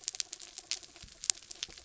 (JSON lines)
{"label": "anthrophony, mechanical", "recorder": "SoundTrap 300"}